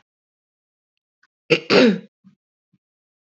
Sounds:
Throat clearing